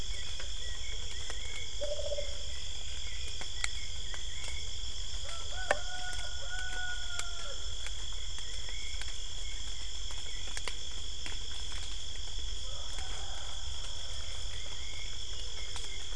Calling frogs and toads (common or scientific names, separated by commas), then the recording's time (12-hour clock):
none
5:45pm